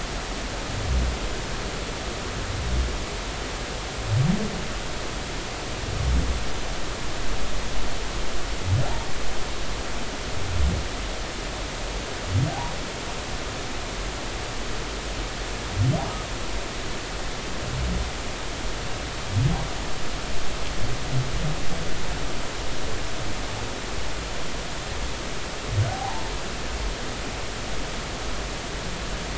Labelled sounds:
25.9	26.3	humpback whale, 0.80 to 1.1 kHz

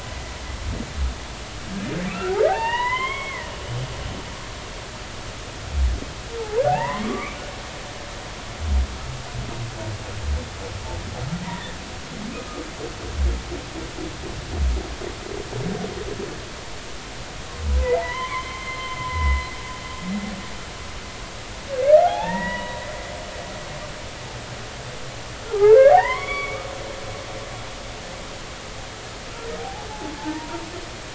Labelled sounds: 2.1	3.5	humpback whale, 0.80 to 3.4 kHz
6.6	7.3	humpback whale, 0.80 to 2.1 kHz
11.4	11.8	humpback whale, 1.7 to 2.0 kHz
17.8	19.4	humpback whale, 0.80 to 4.2 kHz
22.1	22.8	humpback whale, 0.80 to 3.7 kHz
25.5	26.7	humpback whale, 0.80 to 3.5 kHz
29.6	29.9	humpback whale, 0.80 to 0.90 kHz
30.2	30.6	humpback whale, 0.83 to 1.0 kHz

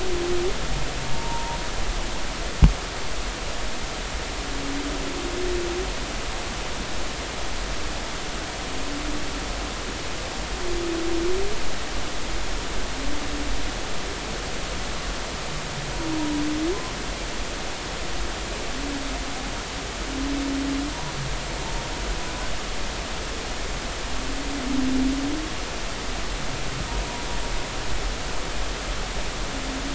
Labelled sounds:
1.1	1.6	humpback whale, 0.83 to 0.99 kHz

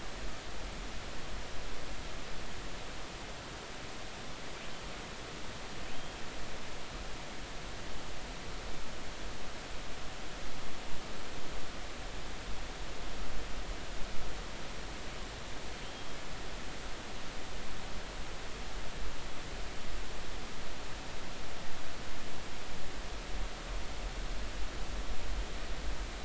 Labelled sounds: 5.9	6.2	killer whale, northern resident, 3.1 to 3.3 kHz
15.8	16.2	killer whale, northern resident, 3.0 to 3.4 kHz

